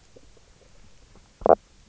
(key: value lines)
label: biophony, knock croak
recorder: SoundTrap 300

label: biophony, stridulation
recorder: SoundTrap 300